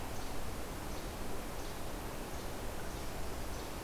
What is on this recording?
Least Flycatcher